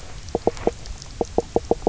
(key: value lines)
label: biophony, knock croak
recorder: SoundTrap 300